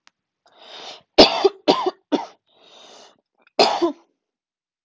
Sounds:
Cough